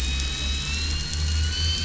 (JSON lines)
{"label": "anthrophony, boat engine", "recorder": "SoundTrap 500"}